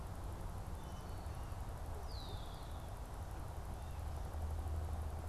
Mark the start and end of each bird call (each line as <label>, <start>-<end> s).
Red-winged Blackbird (Agelaius phoeniceus), 1.8-5.3 s